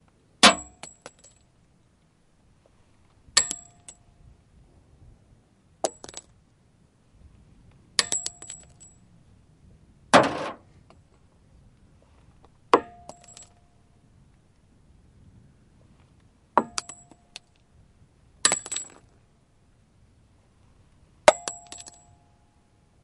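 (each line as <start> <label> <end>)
0.4 A bullet casing falls onto a metallic surface at a shooting range. 0.8
0.8 A bullet casing bounces several times on the floor, producing metallic noises. 1.6
3.2 A bullet casing falls onto a metallic surface at a shooting range. 3.8
3.8 A bullet casing jumps on the floor, producing a metallic noise. 4.2
5.7 A bullet casing falls on the floor of a shooting range, bouncing several times and producing a metallic noise. 6.5
7.8 A bullet casing falls onto a metallic surface at a shooting range. 8.2
8.2 A bullet casing bounces several times on the floor, producing metallic noises. 9.1
10.0 A bullet casing falls onto a metal box, producing a muffled metallic sound. 10.7
12.6 A bullet casing falls onto a metallic surface at a shooting range. 13.0
13.0 A bullet casing bounces several times on the floor, producing metallic noises. 13.6
16.5 A bullet casing falls onto a metallic surface at a shooting range. 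16.8
16.8 A bullet casing bounces several times on the floor, producing metallic noises. 17.6
18.4 A bullet casing falls onto a metallic surface at a shooting range. 18.6
18.6 A bullet casing bounces several times on the floor, producing metallic noises. 19.2
21.2 A bullet casing falls onto a metallic surface at a shooting range. 21.5
21.5 A bullet casing bounces several times on the floor, producing metallic noises. 22.3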